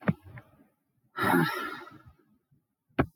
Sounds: Sigh